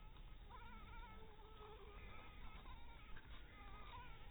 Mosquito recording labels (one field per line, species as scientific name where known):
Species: Anopheles dirus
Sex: female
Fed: unfed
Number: one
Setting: cup